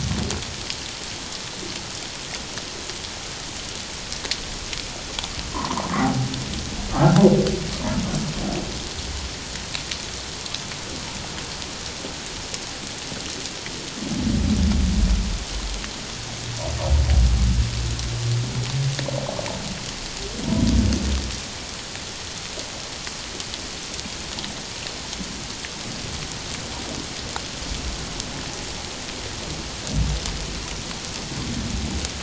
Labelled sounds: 5.5	6.3	humpback whale, 0.78 to 1.3 kHz
6.9	7.2	humpback whale, 1.2 to 1.6 kHz

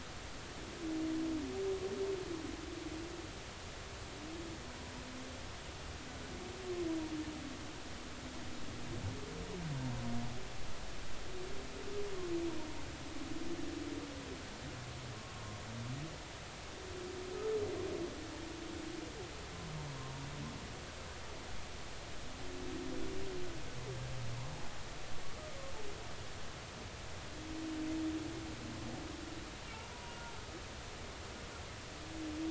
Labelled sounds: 29.7	30.1	humpback whale, 0.83 to 1.0 kHz

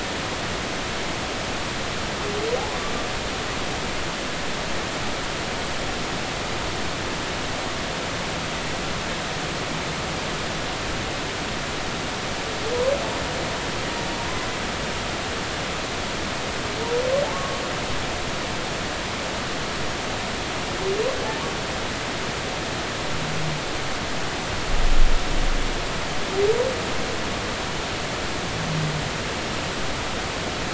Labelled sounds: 17.3	17.6	humpback whale, 1.0 to 1.2 kHz

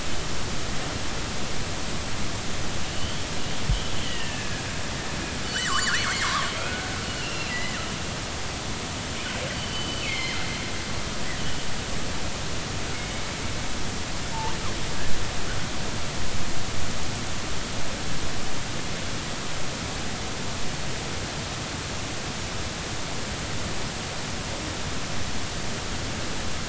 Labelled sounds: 2.9	3.2	killer whale, northern resident, G clan, GG subclan, 2.8 to 3.2 kHz
4.0	4.6	killer whale, northern resident, G clan, GG subclan, 1.5 to 3.3 kHz
5.4	6.9	killer whale, northern resident, G clan, GG subclan, 0.96 to 4.8 kHz
7.2	7.8	killer whale, northern resident, G clan, GG subclan, 1.8 to 2.9 kHz
9.5	10.4	killer whale, northern resident, G clan, GG subclan, 1.9 to 4.7 kHz
12.9	13.2	killer whale, northern resident, G clan, GG subclan, 2.1 to 2.3 kHz

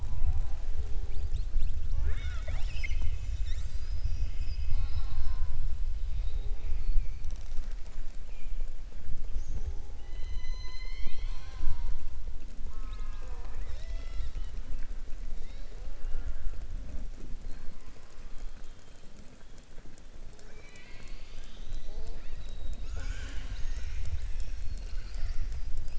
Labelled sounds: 12.6	14.6	killer whale, southern resident, 0.47 to 7.6 kHz

